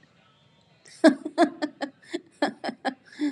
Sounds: Laughter